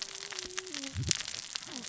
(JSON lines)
{"label": "biophony, cascading saw", "recorder": "SoundTrap 600 or HydroMoth"}